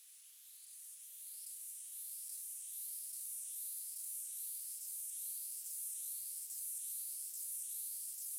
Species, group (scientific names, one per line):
Stenobothrus lineatus
Orthoptera